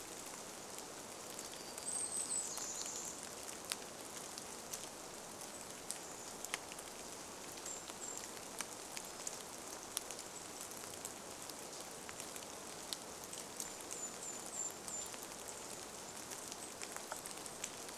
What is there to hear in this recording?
Golden-crowned Kinglet call, warbler song, rain, Chestnut-backed Chickadee call, Golden-crowned Kinglet song